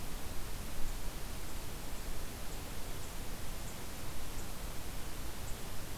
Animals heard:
forest ambience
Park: Acadia National Park